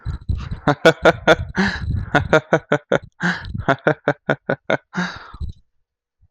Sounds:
Laughter